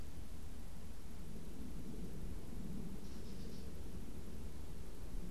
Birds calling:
Gray Catbird (Dumetella carolinensis)

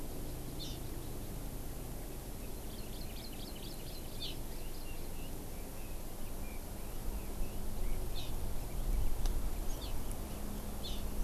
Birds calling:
Hawaii Amakihi (Chlorodrepanis virens)
Red-billed Leiothrix (Leiothrix lutea)

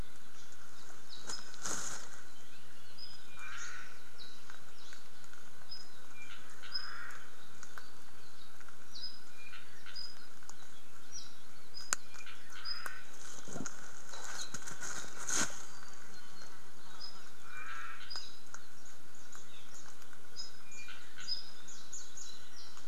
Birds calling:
Omao (Myadestes obscurus)
Warbling White-eye (Zosterops japonicus)
Apapane (Himatione sanguinea)

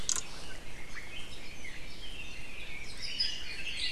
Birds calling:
Red-billed Leiothrix (Leiothrix lutea)
Hawaii Amakihi (Chlorodrepanis virens)

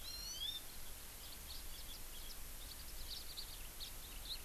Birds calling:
Eurasian Skylark (Alauda arvensis)
House Finch (Haemorhous mexicanus)
Hawaii Amakihi (Chlorodrepanis virens)

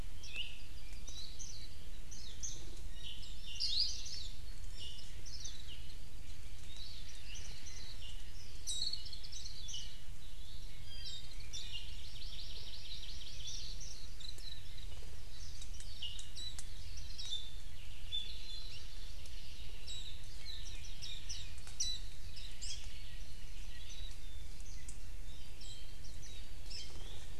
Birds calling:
Hawaii Creeper (Loxops mana)
Iiwi (Drepanis coccinea)
Hawaii Akepa (Loxops coccineus)
Warbling White-eye (Zosterops japonicus)
Apapane (Himatione sanguinea)
Hawaii Amakihi (Chlorodrepanis virens)

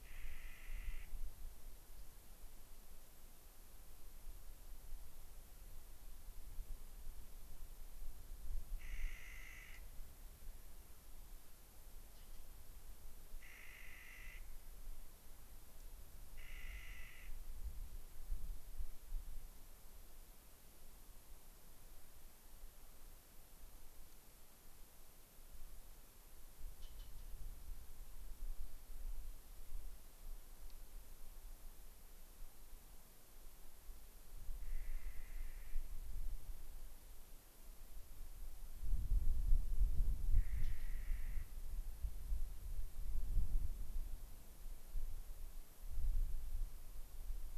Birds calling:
unidentified bird
Clark's Nutcracker (Nucifraga columbiana)
Rock Wren (Salpinctes obsoletus)

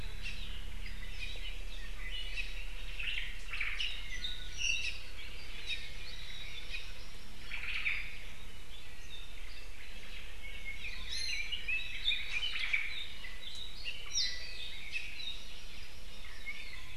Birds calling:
Hawaii Amakihi (Chlorodrepanis virens)
Apapane (Himatione sanguinea)
Red-billed Leiothrix (Leiothrix lutea)
Iiwi (Drepanis coccinea)
Omao (Myadestes obscurus)

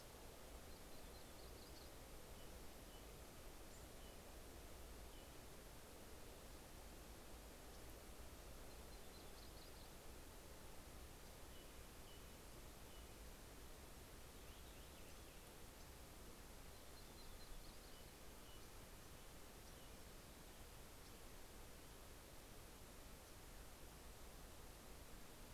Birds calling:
Fox Sparrow (Passerella iliaca)
Purple Finch (Haemorhous purpureus)
Yellow-rumped Warbler (Setophaga coronata)

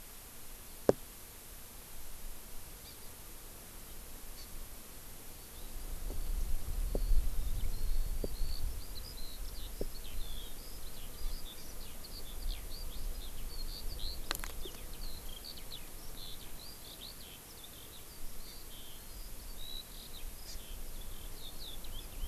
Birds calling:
Hawaii Amakihi (Chlorodrepanis virens)
Eurasian Skylark (Alauda arvensis)

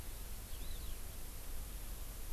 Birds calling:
Eurasian Skylark (Alauda arvensis)

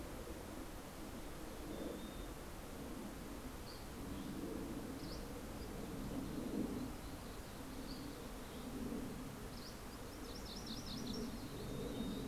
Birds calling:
Mountain Chickadee (Poecile gambeli)
Dusky Flycatcher (Empidonax oberholseri)
MacGillivray's Warbler (Geothlypis tolmiei)

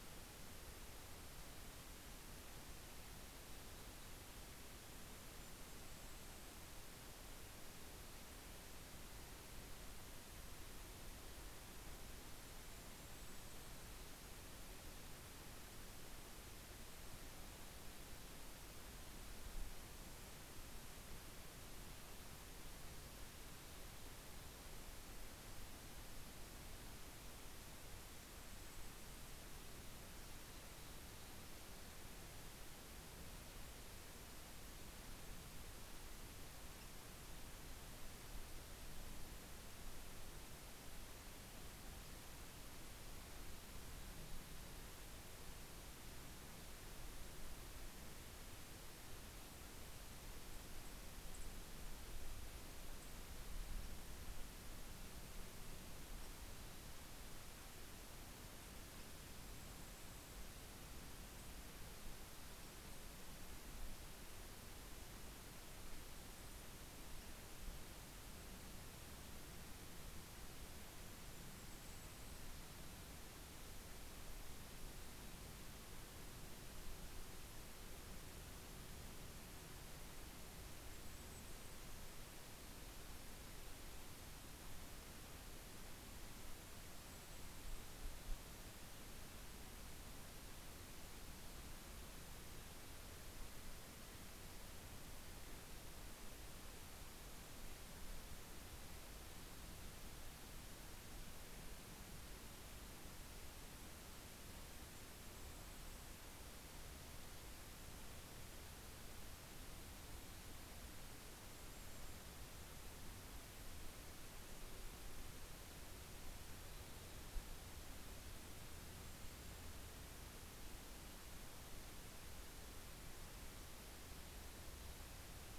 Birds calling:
Dark-eyed Junco (Junco hyemalis)
Golden-crowned Kinglet (Regulus satrapa)

